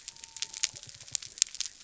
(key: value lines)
label: biophony
recorder: SoundTrap 300